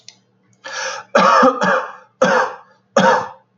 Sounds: Cough